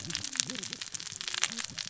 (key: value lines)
label: biophony, cascading saw
recorder: SoundTrap 600 or HydroMoth